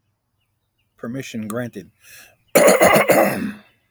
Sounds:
Throat clearing